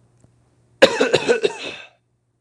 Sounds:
Cough